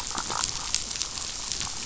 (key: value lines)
label: biophony, damselfish
recorder: SoundTrap 500